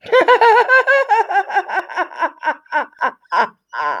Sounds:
Laughter